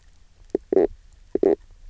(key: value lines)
label: biophony, knock croak
recorder: SoundTrap 300